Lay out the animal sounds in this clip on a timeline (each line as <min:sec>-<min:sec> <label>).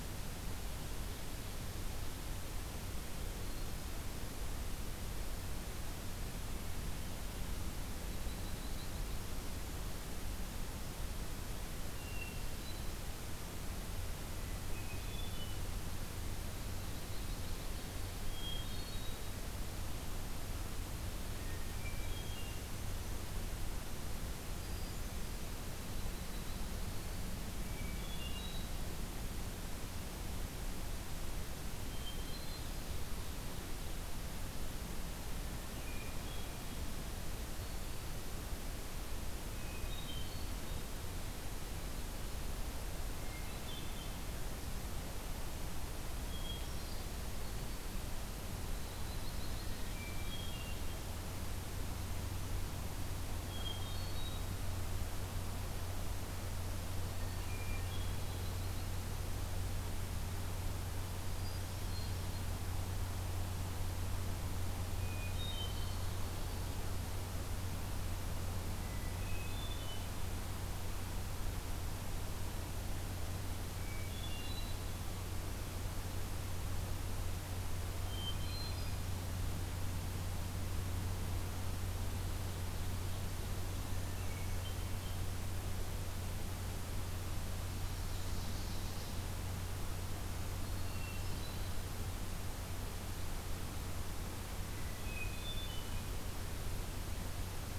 0:03.4-0:04.1 Hermit Thrush (Catharus guttatus)
0:08.0-0:09.4 Yellow-rumped Warbler (Setophaga coronata)
0:11.8-0:13.0 Hermit Thrush (Catharus guttatus)
0:14.6-0:15.6 Hermit Thrush (Catharus guttatus)
0:16.5-0:17.9 Yellow-rumped Warbler (Setophaga coronata)
0:18.2-0:19.4 Hermit Thrush (Catharus guttatus)
0:21.3-0:22.7 Hermit Thrush (Catharus guttatus)
0:24.4-0:25.6 Hermit Thrush (Catharus guttatus)
0:27.6-0:28.7 Hermit Thrush (Catharus guttatus)
0:31.8-0:32.7 Hermit Thrush (Catharus guttatus)
0:35.6-0:36.6 Hermit Thrush (Catharus guttatus)
0:39.5-0:40.9 Hermit Thrush (Catharus guttatus)
0:43.1-0:44.2 Hermit Thrush (Catharus guttatus)
0:46.2-0:47.1 Hermit Thrush (Catharus guttatus)
0:48.7-0:50.2 Yellow-rumped Warbler (Setophaga coronata)
0:49.6-0:50.9 Hermit Thrush (Catharus guttatus)
0:53.4-0:54.5 Hermit Thrush (Catharus guttatus)
0:57.1-0:58.4 Hermit Thrush (Catharus guttatus)
0:58.2-0:59.1 Yellow-rumped Warbler (Setophaga coronata)
1:01.3-1:02.6 Hermit Thrush (Catharus guttatus)
1:04.9-1:06.1 Hermit Thrush (Catharus guttatus)
1:08.8-1:10.1 Hermit Thrush (Catharus guttatus)
1:13.7-1:14.8 Hermit Thrush (Catharus guttatus)
1:18.0-1:19.0 Hermit Thrush (Catharus guttatus)
1:24.0-1:25.2 Hermit Thrush (Catharus guttatus)
1:27.8-1:29.3 Ovenbird (Seiurus aurocapilla)
1:30.7-1:31.7 Hermit Thrush (Catharus guttatus)
1:34.8-1:36.2 Hermit Thrush (Catharus guttatus)